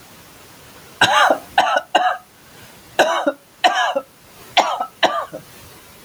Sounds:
Cough